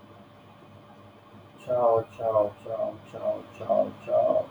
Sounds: Laughter